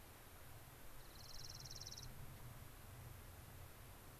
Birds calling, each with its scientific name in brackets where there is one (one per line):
Dark-eyed Junco (Junco hyemalis)